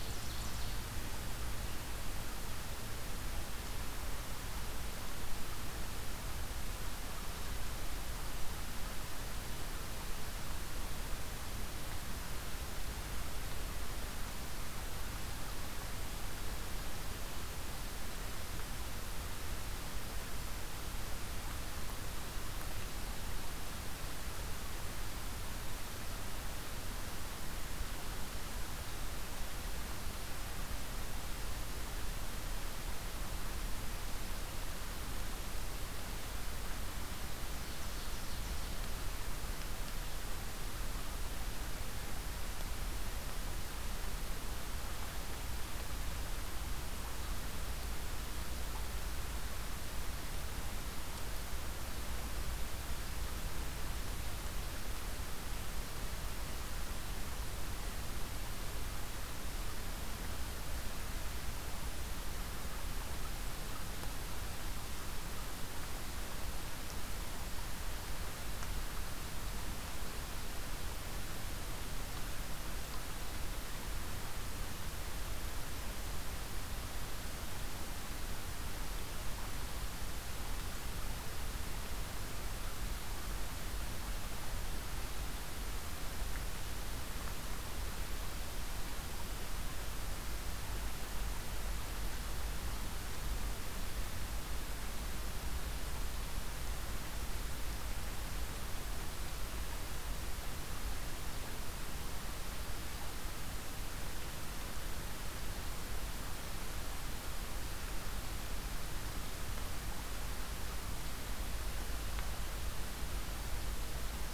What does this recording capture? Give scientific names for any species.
Seiurus aurocapilla, Setophaga virens